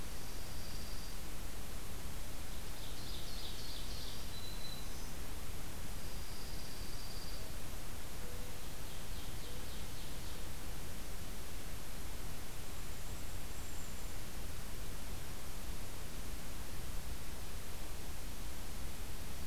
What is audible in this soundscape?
Dark-eyed Junco, Ovenbird, Black-throated Green Warbler, unidentified call